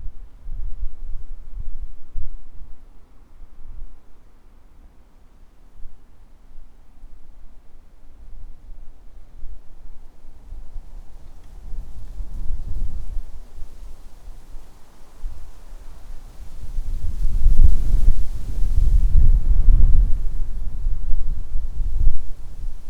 Are animals making noise?
no